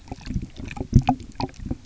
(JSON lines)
{"label": "geophony, waves", "recorder": "SoundTrap 300"}